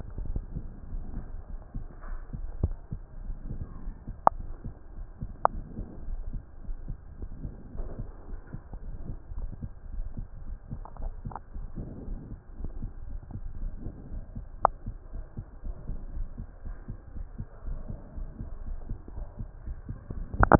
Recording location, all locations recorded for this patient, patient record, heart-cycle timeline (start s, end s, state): pulmonary valve (PV)
pulmonary valve (PV)+tricuspid valve (TV)+mitral valve (MV)
#Age: nan
#Sex: Female
#Height: nan
#Weight: nan
#Pregnancy status: True
#Murmur: Absent
#Murmur locations: nan
#Most audible location: nan
#Systolic murmur timing: nan
#Systolic murmur shape: nan
#Systolic murmur grading: nan
#Systolic murmur pitch: nan
#Systolic murmur quality: nan
#Diastolic murmur timing: nan
#Diastolic murmur shape: nan
#Diastolic murmur grading: nan
#Diastolic murmur pitch: nan
#Diastolic murmur quality: nan
#Outcome: Normal
#Campaign: 2015 screening campaign
0.00	5.39	unannotated
5.39	5.54	diastole
5.54	5.66	S1
5.66	5.76	systole
5.76	5.86	S2
5.86	6.06	diastole
6.06	6.24	S1
6.24	6.32	systole
6.32	6.42	S2
6.42	6.64	diastole
6.64	6.78	S1
6.78	6.86	systole
6.86	6.98	S2
6.98	7.20	diastole
7.20	7.32	S1
7.32	7.42	systole
7.42	7.52	S2
7.52	7.74	diastole
7.74	7.90	S1
7.90	7.98	systole
7.98	8.10	S2
8.10	8.30	diastole
8.30	8.40	S1
8.40	8.52	systole
8.52	8.60	S2
8.60	8.84	diastole
8.84	8.98	S1
8.98	9.08	systole
9.08	9.18	S2
9.18	9.36	diastole
9.36	9.52	S1
9.52	9.60	systole
9.60	9.70	S2
9.70	9.92	diastole
9.92	10.10	S1
10.10	10.16	systole
10.16	10.26	S2
10.26	10.46	diastole
10.46	10.58	S1
10.58	10.72	systole
10.72	10.82	S2
10.82	11.00	diastole
11.00	11.16	S1
11.16	11.24	systole
11.24	11.34	S2
11.34	11.54	diastole
11.54	11.66	S1
11.66	11.76	systole
11.76	11.88	S2
11.88	12.08	diastole
12.08	12.20	S1
12.20	12.30	systole
12.30	12.38	S2
12.38	12.60	diastole
12.60	12.72	S1
12.72	12.80	systole
12.80	12.92	S2
12.92	13.08	diastole
13.08	13.22	S1
13.22	13.34	systole
13.34	13.44	S2
13.44	13.60	diastole
13.60	13.74	S1
13.74	13.86	systole
13.86	13.94	S2
13.94	14.12	diastole
14.12	14.24	S1
14.24	14.34	systole
14.34	14.44	S2
14.44	14.64	diastole
14.64	14.74	S1
14.74	14.86	systole
14.86	14.96	S2
14.96	15.14	diastole
15.14	15.26	S1
15.26	15.38	systole
15.38	15.46	S2
15.46	15.66	diastole
15.66	15.78	S1
15.78	15.88	systole
15.88	16.00	S2
16.00	16.14	diastole
16.14	16.28	S1
16.28	16.38	systole
16.38	16.48	S2
16.48	16.66	diastole
16.66	16.76	S1
16.76	16.88	systole
16.88	16.98	S2
16.98	17.16	diastole
17.16	17.28	S1
17.28	17.36	systole
17.36	17.46	S2
17.46	17.66	diastole
17.66	17.80	S1
17.80	17.88	systole
17.88	17.98	S2
17.98	18.16	diastole
18.16	18.30	S1
18.30	18.38	systole
18.38	18.48	S2
18.48	18.68	diastole
18.68	18.80	S1
18.80	18.88	systole
18.88	18.98	S2
18.98	19.14	diastole
19.14	19.28	S1
19.28	19.40	systole
19.40	19.48	S2
19.48	19.66	diastole
19.66	19.82	S1
19.82	19.90	systole
19.90	20.59	unannotated